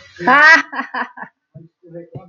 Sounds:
Laughter